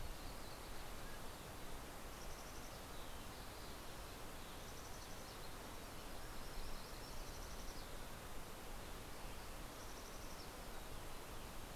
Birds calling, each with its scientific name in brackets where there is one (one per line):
Mountain Chickadee (Poecile gambeli)
Yellow-rumped Warbler (Setophaga coronata)
Mountain Quail (Oreortyx pictus)